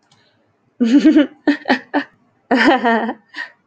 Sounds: Laughter